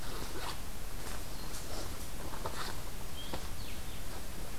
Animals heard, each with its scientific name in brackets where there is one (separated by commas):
Blue-headed Vireo (Vireo solitarius)